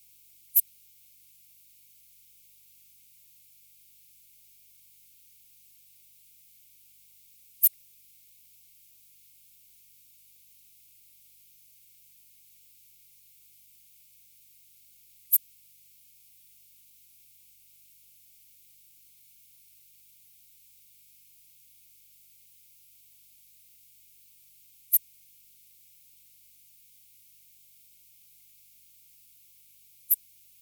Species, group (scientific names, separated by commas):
Poecilimon ornatus, Orthoptera